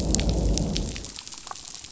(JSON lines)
{"label": "biophony, growl", "recorder": "SoundTrap 500"}